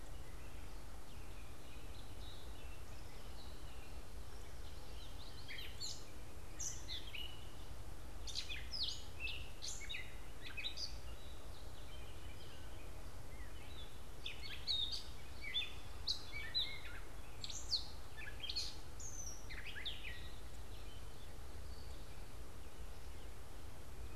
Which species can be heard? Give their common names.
Common Yellowthroat, Gray Catbird